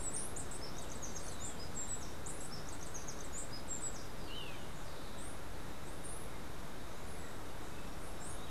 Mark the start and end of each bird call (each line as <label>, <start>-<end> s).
Steely-vented Hummingbird (Saucerottia saucerottei), 0.0-4.4 s
Golden-faced Tyrannulet (Zimmerius chrysops), 4.1-4.7 s